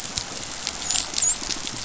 {"label": "biophony, dolphin", "recorder": "SoundTrap 500"}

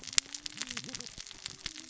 {"label": "biophony, cascading saw", "recorder": "SoundTrap 600 or HydroMoth"}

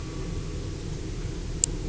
{"label": "anthrophony, boat engine", "recorder": "SoundTrap 300"}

